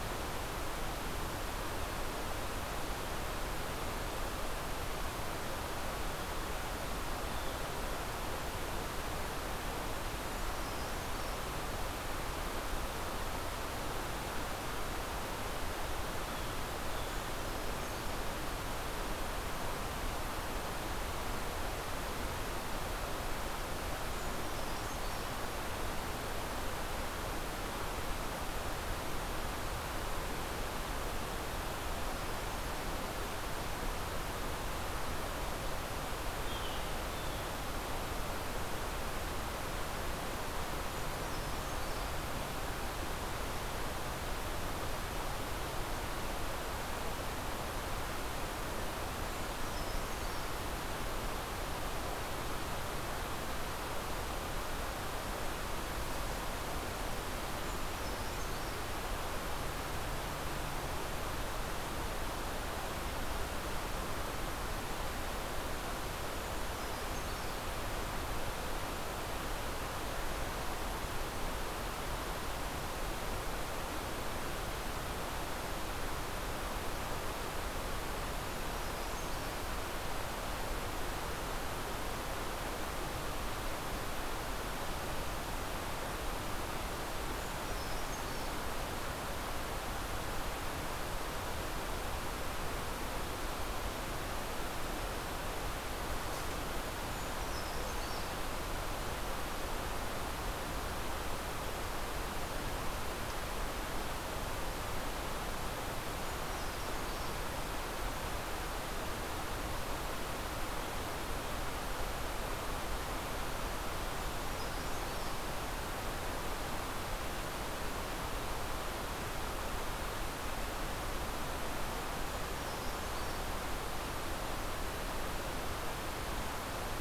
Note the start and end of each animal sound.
7.0s-7.7s: Blue Jay (Cyanocitta cristata)
10.0s-11.8s: Brown Creeper (Certhia americana)
16.0s-17.4s: Blue Jay (Cyanocitta cristata)
16.4s-18.3s: Brown Creeper (Certhia americana)
23.8s-25.7s: Brown Creeper (Certhia americana)
36.2s-37.7s: Blue Jay (Cyanocitta cristata)
40.7s-42.4s: Brown Creeper (Certhia americana)
48.8s-50.9s: Brown Creeper (Certhia americana)
57.4s-59.4s: Brown Creeper (Certhia americana)
66.1s-67.9s: Brown Creeper (Certhia americana)
78.1s-79.7s: Brown Creeper (Certhia americana)
87.1s-88.8s: Brown Creeper (Certhia americana)
96.8s-98.8s: Brown Creeper (Certhia americana)
105.9s-107.9s: Brown Creeper (Certhia americana)
114.0s-115.6s: Brown Creeper (Certhia americana)
121.9s-123.7s: Brown Creeper (Certhia americana)

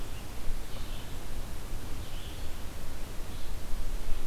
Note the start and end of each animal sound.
0.6s-4.3s: Blue-headed Vireo (Vireo solitarius)

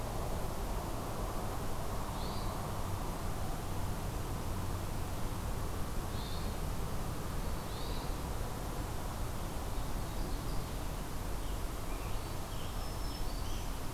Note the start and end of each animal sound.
2.1s-2.5s: Hermit Thrush (Catharus guttatus)
6.0s-6.6s: Hermit Thrush (Catharus guttatus)
7.6s-8.2s: Hermit Thrush (Catharus guttatus)
9.4s-11.0s: Ovenbird (Seiurus aurocapilla)
10.7s-13.9s: Scarlet Tanager (Piranga olivacea)
12.5s-13.9s: Black-throated Green Warbler (Setophaga virens)

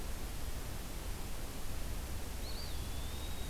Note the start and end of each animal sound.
2.3s-3.5s: Eastern Wood-Pewee (Contopus virens)

